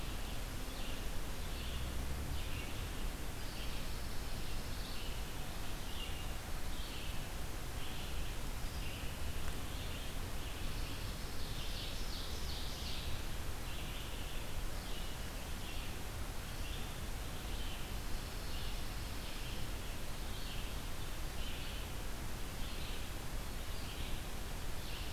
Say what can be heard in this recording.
Red-eyed Vireo, Pine Warbler, Ovenbird